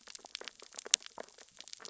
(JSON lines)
{"label": "biophony, sea urchins (Echinidae)", "recorder": "SoundTrap 600 or HydroMoth"}